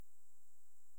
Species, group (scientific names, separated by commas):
Pholidoptera griseoaptera, Orthoptera